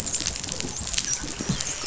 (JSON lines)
{"label": "biophony, dolphin", "recorder": "SoundTrap 500"}